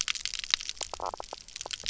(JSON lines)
{"label": "biophony, knock croak", "recorder": "SoundTrap 300"}